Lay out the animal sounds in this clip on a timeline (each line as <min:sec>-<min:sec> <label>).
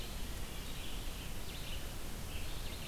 0:00.0-0:02.9 Red-eyed Vireo (Vireo olivaceus)